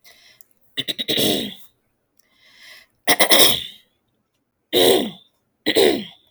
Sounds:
Throat clearing